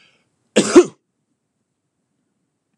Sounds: Sneeze